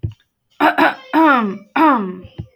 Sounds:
Throat clearing